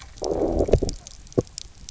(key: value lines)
label: biophony, low growl
recorder: SoundTrap 300